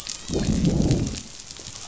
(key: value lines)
label: biophony, growl
recorder: SoundTrap 500

label: biophony, dolphin
recorder: SoundTrap 500